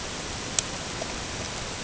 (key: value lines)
label: ambient
recorder: HydroMoth